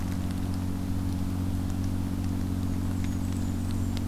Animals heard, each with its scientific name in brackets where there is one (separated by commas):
Blackburnian Warbler (Setophaga fusca)